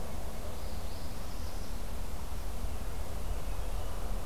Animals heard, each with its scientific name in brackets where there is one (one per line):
Northern Parula (Setophaga americana)